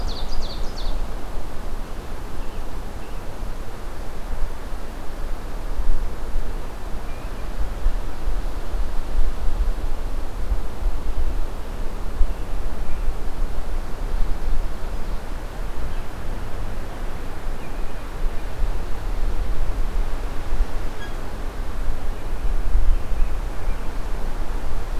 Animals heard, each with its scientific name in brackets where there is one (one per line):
Ovenbird (Seiurus aurocapilla)
American Robin (Turdus migratorius)